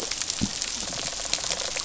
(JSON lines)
{"label": "biophony, rattle response", "recorder": "SoundTrap 500"}